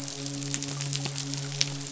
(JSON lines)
{"label": "biophony, midshipman", "recorder": "SoundTrap 500"}